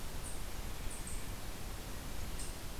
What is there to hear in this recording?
unknown mammal